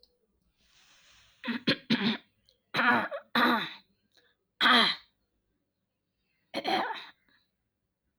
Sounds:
Throat clearing